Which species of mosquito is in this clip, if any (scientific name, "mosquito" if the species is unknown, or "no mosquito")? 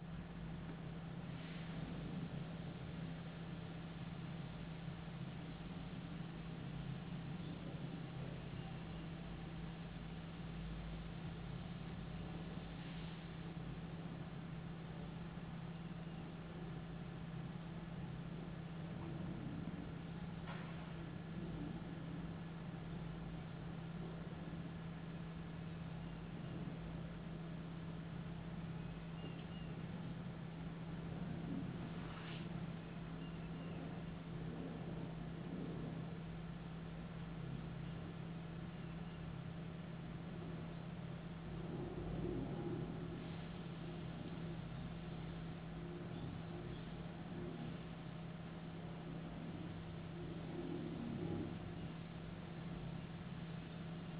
no mosquito